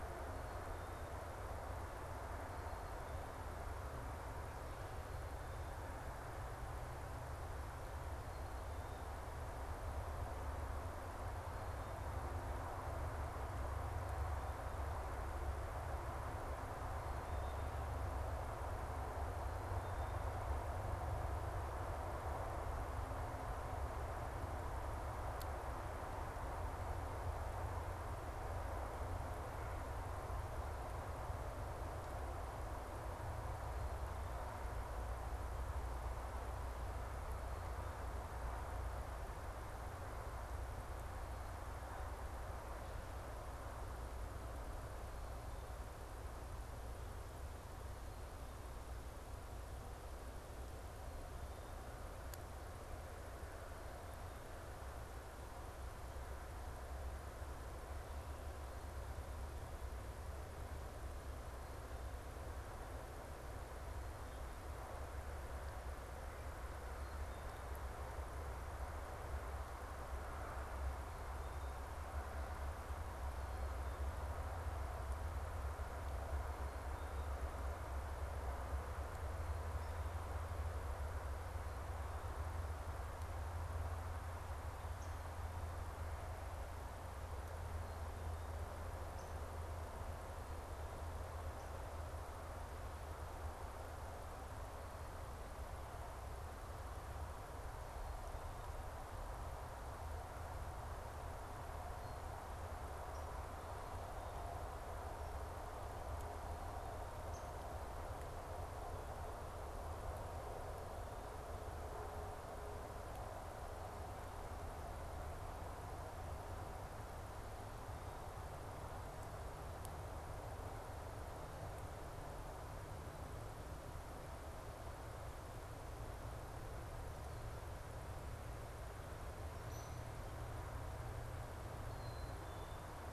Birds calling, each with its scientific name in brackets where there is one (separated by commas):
Downy Woodpecker (Dryobates pubescens), Black-capped Chickadee (Poecile atricapillus)